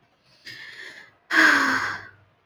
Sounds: Sigh